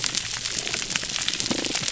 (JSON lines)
{"label": "biophony, damselfish", "recorder": "SoundTrap 300"}